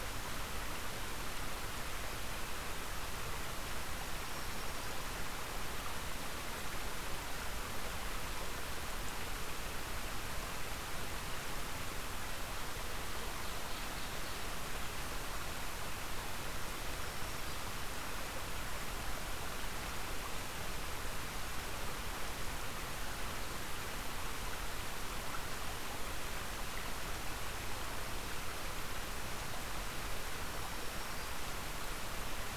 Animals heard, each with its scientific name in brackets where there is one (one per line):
Black-throated Green Warbler (Setophaga virens)
Ovenbird (Seiurus aurocapilla)